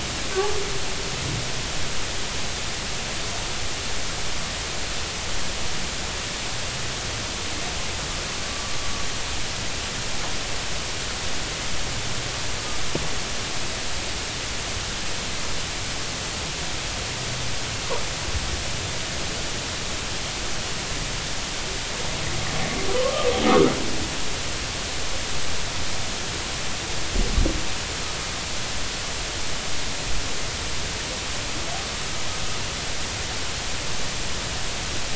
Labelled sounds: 23.0	23.8	humpback whale, 0.96 to 1.4 kHz

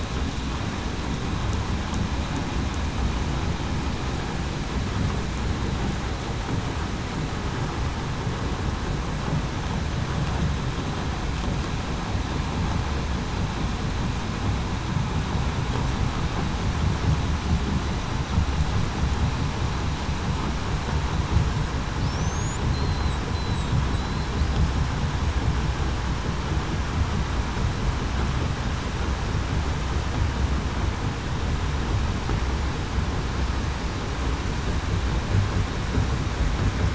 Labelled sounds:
22.2	24.2	killer whale, southern resident, 3.7 to 8.0 kHz

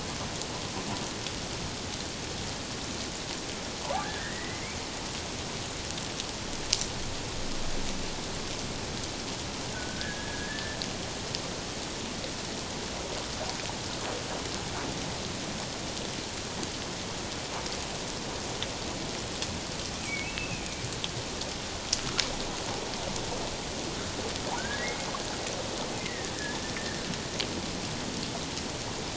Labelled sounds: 4.0	4.6	humpback whale, 1.5 to 2.2 kHz
9.7	10.8	humpback whale, 1.4 to 1.8 kHz
20.0	20.8	humpback whale, 2.2 to 2.8 kHz
24.6	25.1	humpback whale, 1.4 to 2.2 kHz
26.0	27.0	humpback whale, 1.6 to 2.2 kHz

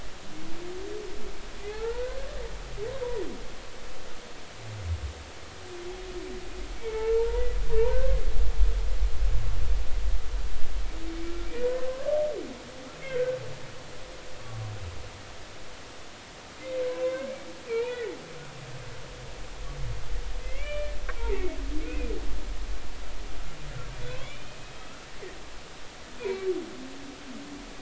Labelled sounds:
1.6	2.2	humpback whale, 0.80 to 1.6 kHz
6.8	7.6	humpback whale, 0.83 to 2.3 kHz
11.2	11.5	humpback whale, 1.3 to 1.4 kHz
11.8	12.2	humpback whale, 0.99 to 1.7 kHz
13.0	13.4	humpback whale, 1.4 to 1.7 kHz
17.0	18.1	humpback whale, 0.96 to 3.0 kHz
20.4	20.9	humpback whale, 2.0 to 3.0 kHz
21.3	21.6	humpback whale, 1.8 to 2.3 kHz
21.9	22.1	humpback whale, 2.4 to 2.7 kHz
24.2	25.0	humpback whale, 1.2 to 3.2 kHz
27.2	27.5	humpback whale, 2.2 to 2.6 kHz

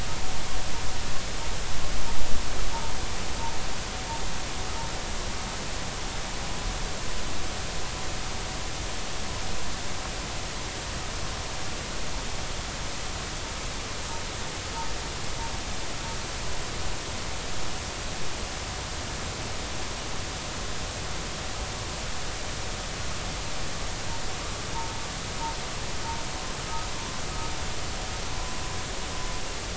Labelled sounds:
28.3	28.6	vessel noise, 0.96 to 1.1 kHz

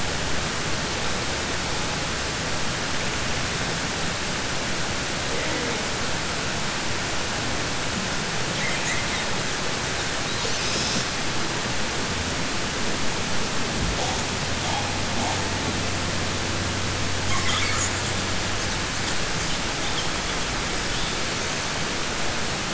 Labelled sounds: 8.5	9.3	killer whale, southern resident, 1.8 to 3.2 kHz

